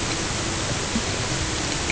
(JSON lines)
{"label": "ambient", "recorder": "HydroMoth"}